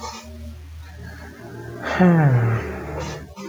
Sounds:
Sigh